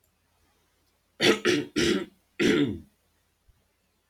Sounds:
Throat clearing